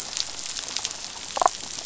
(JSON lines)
{"label": "biophony, damselfish", "recorder": "SoundTrap 500"}